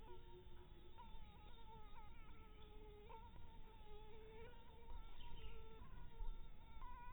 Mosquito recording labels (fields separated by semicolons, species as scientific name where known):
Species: Anopheles harrisoni; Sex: female; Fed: blood-fed; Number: one; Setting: cup